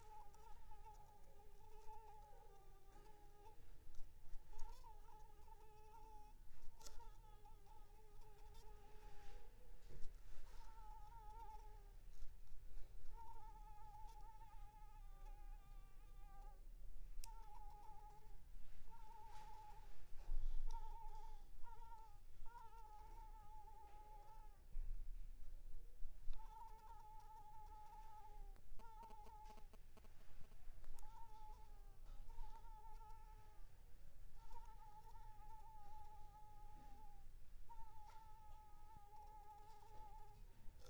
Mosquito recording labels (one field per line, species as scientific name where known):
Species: Anopheles squamosus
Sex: female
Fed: unfed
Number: one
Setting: cup